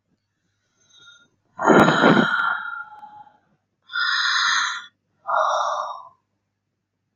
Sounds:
Sigh